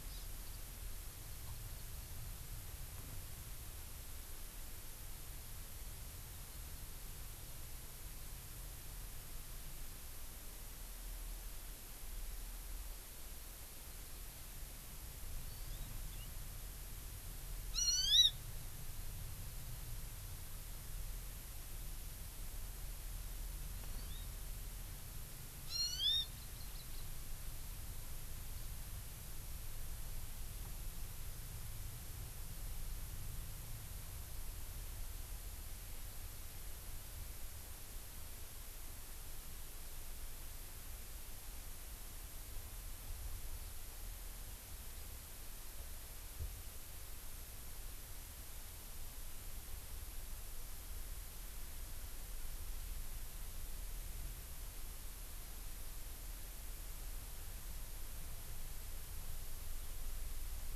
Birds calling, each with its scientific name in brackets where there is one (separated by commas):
Hawaii Amakihi (Chlorodrepanis virens), Warbling White-eye (Zosterops japonicus)